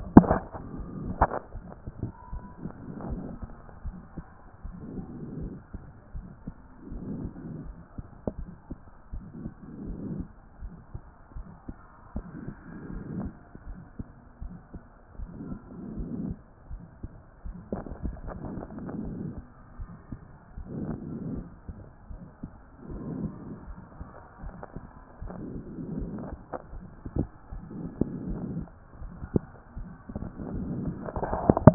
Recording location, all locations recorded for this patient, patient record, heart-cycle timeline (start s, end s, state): pulmonary valve (PV)
aortic valve (AV)+pulmonary valve (PV)+tricuspid valve (TV)
#Age: nan
#Sex: Female
#Height: nan
#Weight: nan
#Pregnancy status: True
#Murmur: Present
#Murmur locations: aortic valve (AV)+pulmonary valve (PV)
#Most audible location: pulmonary valve (PV)
#Systolic murmur timing: Early-systolic
#Systolic murmur shape: Plateau
#Systolic murmur grading: I/VI
#Systolic murmur pitch: Low
#Systolic murmur quality: Harsh
#Diastolic murmur timing: nan
#Diastolic murmur shape: nan
#Diastolic murmur grading: nan
#Diastolic murmur pitch: nan
#Diastolic murmur quality: nan
#Outcome: Normal
#Campaign: 2014 screening campaign
0.00	8.12	unannotated
8.12	8.38	diastole
8.38	8.50	S1
8.50	8.68	systole
8.68	8.76	S2
8.76	9.12	diastole
9.12	9.24	S1
9.24	9.42	systole
9.42	9.50	S2
9.50	9.84	diastole
9.84	9.98	S1
9.98	10.10	systole
10.10	10.26	S2
10.26	10.62	diastole
10.62	10.72	S1
10.72	10.94	systole
10.94	11.02	S2
11.02	11.36	diastole
11.36	11.46	S1
11.46	11.68	systole
11.68	11.76	S2
11.76	12.14	diastole
12.14	12.26	S1
12.26	12.44	systole
12.44	12.54	S2
12.54	12.94	diastole
12.94	13.04	S1
13.04	13.16	systole
13.16	13.32	S2
13.32	13.68	diastole
13.68	13.78	S1
13.78	13.98	systole
13.98	14.06	S2
14.06	14.42	diastole
14.42	14.56	S1
14.56	14.72	systole
14.72	14.80	S2
14.80	15.18	diastole
15.18	15.30	S1
15.30	15.48	systole
15.48	15.58	S2
15.58	15.96	diastole
15.96	16.10	S1
16.10	16.22	systole
16.22	16.36	S2
16.36	16.70	diastole
16.70	16.82	S1
16.82	17.02	systole
17.02	17.12	S2
17.12	17.48	diastole
17.48	17.56	S1
17.56	17.72	systole
17.72	17.80	S2
17.80	17.92	diastole
17.92	31.74	unannotated